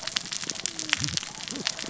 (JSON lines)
{"label": "biophony, cascading saw", "recorder": "SoundTrap 600 or HydroMoth"}